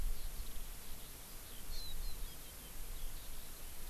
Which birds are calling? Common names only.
Eurasian Skylark, Hawaii Amakihi